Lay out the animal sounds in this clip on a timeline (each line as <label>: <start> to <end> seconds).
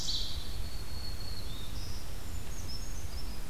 Ovenbird (Seiurus aurocapilla): 0.0 to 0.8 seconds
Black-throated Green Warbler (Setophaga virens): 0.0 to 2.3 seconds
Brown Creeper (Certhia americana): 1.7 to 3.5 seconds